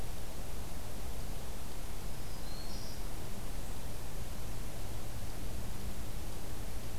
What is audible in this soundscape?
Black-throated Green Warbler